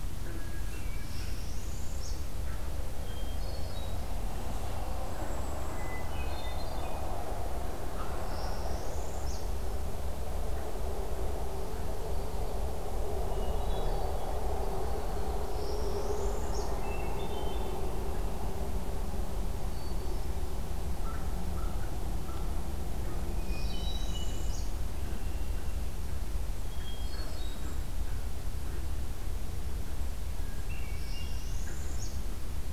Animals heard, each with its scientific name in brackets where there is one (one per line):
Northern Parula (Setophaga americana)
American Crow (Corvus brachyrhynchos)
Hermit Thrush (Catharus guttatus)